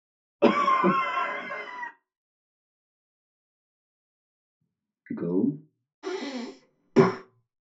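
First someone coughs. Then a voice says "go". Finally, breathing is audible.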